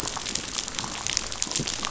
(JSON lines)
{"label": "biophony, damselfish", "recorder": "SoundTrap 500"}